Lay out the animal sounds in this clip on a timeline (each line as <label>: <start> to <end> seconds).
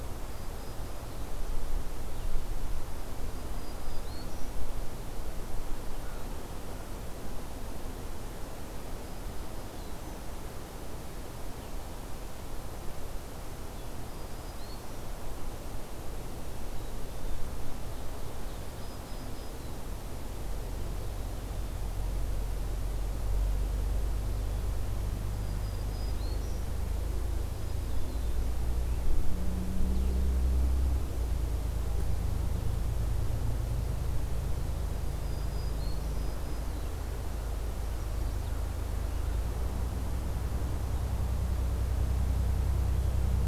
Black-throated Green Warbler (Setophaga virens): 0.0 to 1.1 seconds
Black-throated Green Warbler (Setophaga virens): 3.2 to 4.5 seconds
American Crow (Corvus brachyrhynchos): 6.0 to 6.9 seconds
Black-throated Green Warbler (Setophaga virens): 8.9 to 10.1 seconds
Black-throated Green Warbler (Setophaga virens): 13.9 to 15.1 seconds
Ovenbird (Seiurus aurocapilla): 17.9 to 19.5 seconds
Black-throated Green Warbler (Setophaga virens): 18.7 to 19.8 seconds
Black-throated Green Warbler (Setophaga virens): 25.3 to 26.6 seconds
Black-throated Green Warbler (Setophaga virens): 27.4 to 28.4 seconds
Black-throated Green Warbler (Setophaga virens): 34.9 to 36.9 seconds